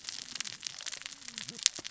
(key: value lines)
label: biophony, cascading saw
recorder: SoundTrap 600 or HydroMoth